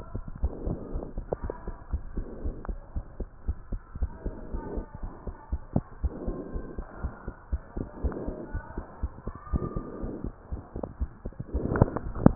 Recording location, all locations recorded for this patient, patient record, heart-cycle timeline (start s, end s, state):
pulmonary valve (PV)
aortic valve (AV)+pulmonary valve (PV)+tricuspid valve (TV)+mitral valve (MV)
#Age: Child
#Sex: Male
#Height: 128.0 cm
#Weight: 37.1 kg
#Pregnancy status: False
#Murmur: Absent
#Murmur locations: nan
#Most audible location: nan
#Systolic murmur timing: nan
#Systolic murmur shape: nan
#Systolic murmur grading: nan
#Systolic murmur pitch: nan
#Systolic murmur quality: nan
#Diastolic murmur timing: nan
#Diastolic murmur shape: nan
#Diastolic murmur grading: nan
#Diastolic murmur pitch: nan
#Diastolic murmur quality: nan
#Outcome: Abnormal
#Campaign: 2015 screening campaign
0.00	0.24	unannotated
0.24	0.36	diastole
0.36	0.52	S1
0.52	0.64	systole
0.64	0.78	S2
0.78	0.92	diastole
0.92	1.02	S1
1.02	1.14	systole
1.14	1.26	S2
1.26	1.42	diastole
1.42	1.54	S1
1.54	1.66	systole
1.66	1.76	S2
1.76	1.92	diastole
1.92	2.06	S1
2.06	2.16	systole
2.16	2.28	S2
2.28	2.42	diastole
2.42	2.56	S1
2.56	2.68	systole
2.68	2.80	S2
2.80	2.94	diastole
2.94	3.04	S1
3.04	3.18	systole
3.18	3.28	S2
3.28	3.44	diastole
3.44	3.56	S1
3.56	3.70	systole
3.70	3.80	S2
3.80	3.96	diastole
3.96	4.12	S1
4.12	4.24	systole
4.24	4.34	S2
4.34	4.50	diastole
4.50	4.62	S1
4.62	4.74	systole
4.74	4.86	S2
4.86	5.02	diastole
5.02	5.12	S1
5.12	5.25	systole
5.25	5.34	S2
5.34	5.50	diastole
5.50	5.60	S1
5.60	5.74	systole
5.74	5.84	S2
5.84	6.00	diastole
6.00	6.14	S1
6.14	6.28	systole
6.28	6.40	S2
6.40	6.54	diastole
6.54	6.66	S1
6.66	6.78	systole
6.78	6.86	S2
6.86	7.02	diastole
7.02	7.12	S1
7.12	7.26	systole
7.26	7.34	S2
7.34	7.52	diastole
7.52	7.64	S1
7.64	7.76	systole
7.76	7.88	S2
7.88	8.02	diastole
8.02	8.14	S1
8.14	8.26	systole
8.26	8.36	S2
8.36	8.52	diastole
8.52	8.62	S1
8.62	8.78	systole
8.78	8.84	S2
8.84	9.00	diastole
9.00	9.12	S1
9.12	9.24	systole
9.24	9.34	S2
9.34	9.50	diastole
9.50	9.64	S1
9.64	9.76	systole
9.76	9.86	S2
9.86	10.02	diastole
10.02	10.14	S1
10.14	10.24	systole
10.24	10.34	S2
10.34	10.52	diastole
10.52	10.62	S1
10.62	10.76	systole
10.76	10.84	S2
10.84	10.98	diastole
10.98	11.10	S1
11.10	11.26	systole
11.26	11.36	S2
11.36	11.52	diastole
11.52	12.35	unannotated